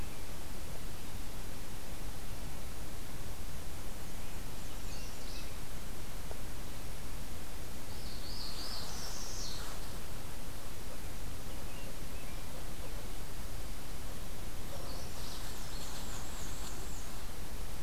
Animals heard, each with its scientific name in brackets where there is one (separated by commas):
Northern Parula (Setophaga americana), Magnolia Warbler (Setophaga magnolia), Black-and-white Warbler (Mniotilta varia)